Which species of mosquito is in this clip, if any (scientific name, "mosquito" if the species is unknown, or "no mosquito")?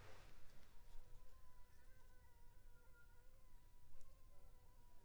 Anopheles funestus s.s.